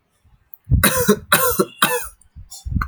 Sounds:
Cough